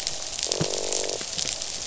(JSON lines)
{"label": "biophony, croak", "recorder": "SoundTrap 500"}